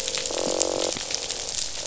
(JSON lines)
{"label": "biophony, croak", "recorder": "SoundTrap 500"}